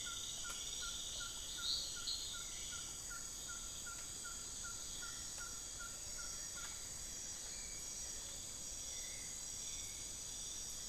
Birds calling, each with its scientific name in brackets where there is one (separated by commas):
Black-billed Thrush (Turdus ignobilis), Hauxwell's Thrush (Turdus hauxwelli), Ferruginous Pygmy-Owl (Glaucidium brasilianum)